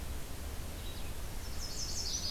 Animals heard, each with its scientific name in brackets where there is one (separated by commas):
Red-eyed Vireo (Vireo olivaceus), Chestnut-sided Warbler (Setophaga pensylvanica)